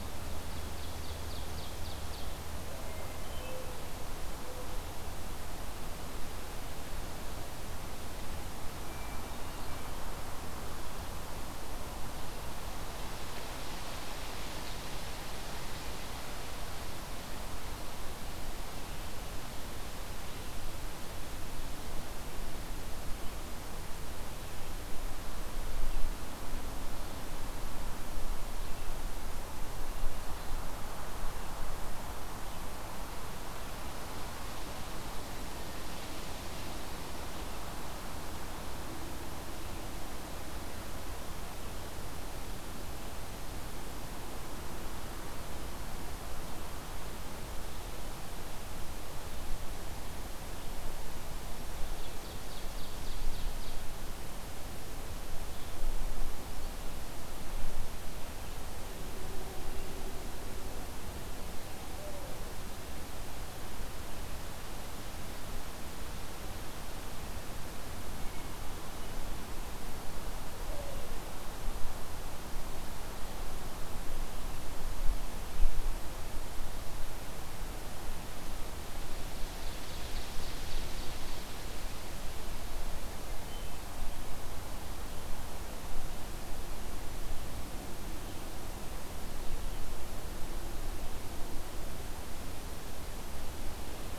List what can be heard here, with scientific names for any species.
Seiurus aurocapilla, Catharus guttatus